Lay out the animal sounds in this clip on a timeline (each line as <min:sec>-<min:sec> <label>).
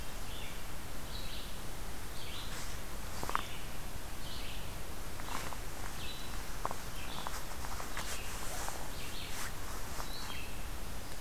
0:00.0-0:10.6 Red-eyed Vireo (Vireo olivaceus)